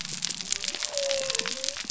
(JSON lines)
{"label": "biophony", "recorder": "SoundTrap 300"}